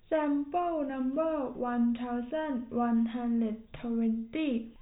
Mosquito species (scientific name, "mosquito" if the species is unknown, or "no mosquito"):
no mosquito